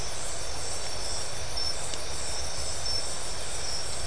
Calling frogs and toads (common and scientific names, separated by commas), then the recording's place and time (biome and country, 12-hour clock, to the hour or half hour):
none
Atlantic Forest, Brazil, 2:30am